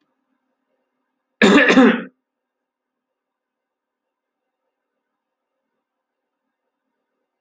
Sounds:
Throat clearing